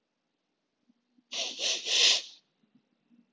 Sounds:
Sniff